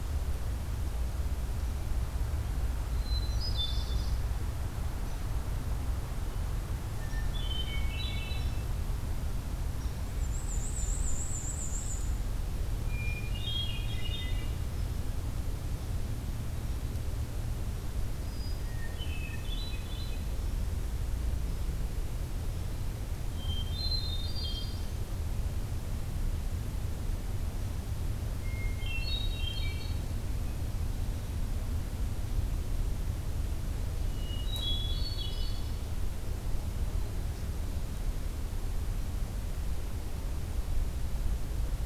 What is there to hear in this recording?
Hermit Thrush, Black-and-white Warbler